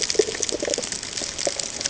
{"label": "ambient", "recorder": "HydroMoth"}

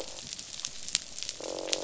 {"label": "biophony, croak", "recorder": "SoundTrap 500"}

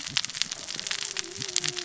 {"label": "biophony, cascading saw", "recorder": "SoundTrap 600 or HydroMoth"}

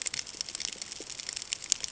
{"label": "ambient", "recorder": "HydroMoth"}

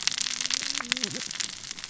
{"label": "biophony, cascading saw", "recorder": "SoundTrap 600 or HydroMoth"}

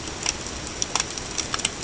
{"label": "ambient", "recorder": "HydroMoth"}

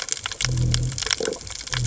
{"label": "biophony", "recorder": "HydroMoth"}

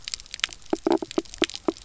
{"label": "biophony, knock croak", "recorder": "SoundTrap 300"}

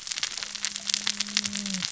{"label": "biophony, cascading saw", "recorder": "SoundTrap 600 or HydroMoth"}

